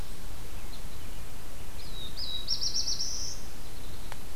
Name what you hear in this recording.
Black-throated Blue Warbler, Downy Woodpecker